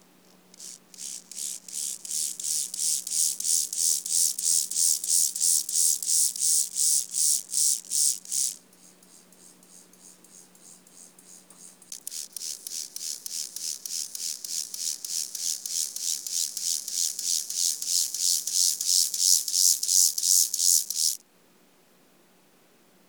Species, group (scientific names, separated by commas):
Chorthippus mollis, Orthoptera